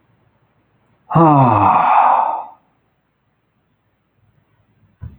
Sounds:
Sigh